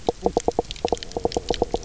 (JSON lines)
{"label": "biophony, knock croak", "recorder": "SoundTrap 300"}